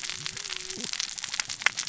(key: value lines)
label: biophony, cascading saw
recorder: SoundTrap 600 or HydroMoth